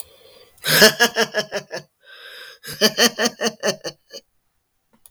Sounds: Laughter